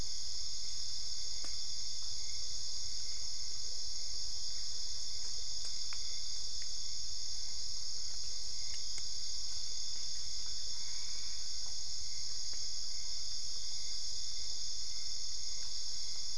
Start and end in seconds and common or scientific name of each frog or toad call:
0.0	16.3	Dendropsophus cruzi
10.6	11.7	Boana albopunctata